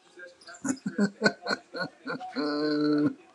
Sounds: Laughter